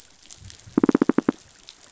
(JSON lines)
{"label": "biophony, knock", "recorder": "SoundTrap 500"}